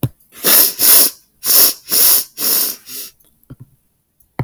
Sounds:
Sniff